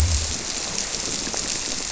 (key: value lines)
label: biophony
recorder: SoundTrap 300